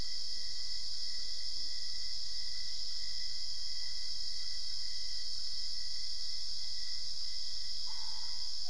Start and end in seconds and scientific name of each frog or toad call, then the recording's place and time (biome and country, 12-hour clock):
7.7	8.6	Boana albopunctata
Cerrado, Brazil, 3:00am